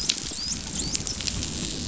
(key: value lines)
label: biophony, dolphin
recorder: SoundTrap 500